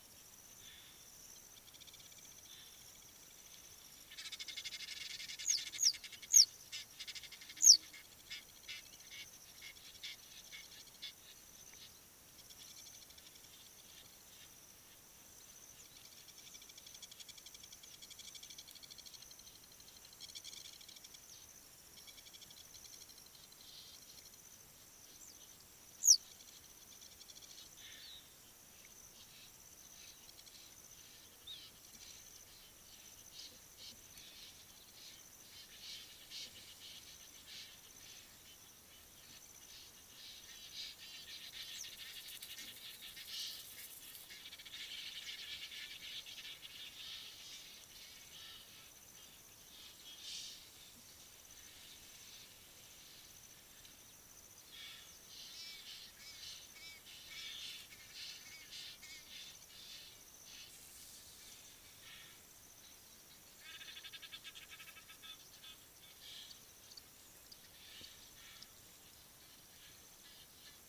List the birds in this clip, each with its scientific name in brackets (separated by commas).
Blacksmith Lapwing (Vanellus armatus), Egyptian Goose (Alopochen aegyptiaca), Western Yellow Wagtail (Motacilla flava)